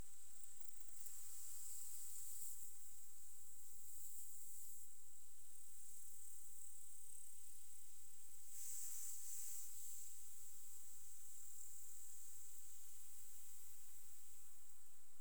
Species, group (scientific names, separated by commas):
Metrioptera buyssoni, Orthoptera